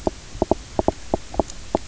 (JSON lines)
{"label": "biophony, knock croak", "recorder": "SoundTrap 300"}